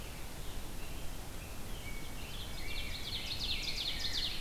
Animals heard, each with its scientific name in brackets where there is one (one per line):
Ovenbird (Seiurus aurocapilla)
Rose-breasted Grosbeak (Pheucticus ludovicianus)